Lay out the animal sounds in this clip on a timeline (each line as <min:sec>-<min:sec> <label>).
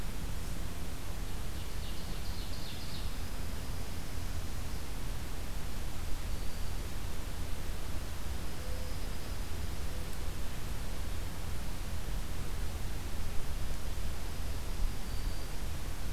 0:01.4-0:03.2 Ovenbird (Seiurus aurocapilla)
0:02.7-0:04.5 Dark-eyed Junco (Junco hyemalis)
0:05.9-0:06.8 Black-throated Green Warbler (Setophaga virens)
0:08.1-0:09.9 Dark-eyed Junco (Junco hyemalis)
0:13.5-0:14.9 Dark-eyed Junco (Junco hyemalis)
0:14.8-0:15.6 Black-throated Green Warbler (Setophaga virens)